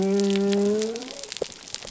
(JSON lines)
{"label": "biophony", "recorder": "SoundTrap 300"}